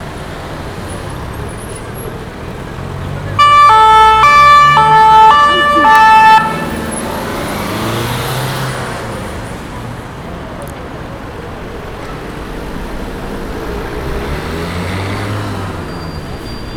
Is that an emergency siren?
yes